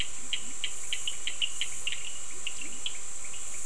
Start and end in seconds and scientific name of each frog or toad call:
0.0	3.6	Sphaenorhynchus surdus
0.1	0.7	Leptodactylus latrans
2.2	2.9	Leptodactylus latrans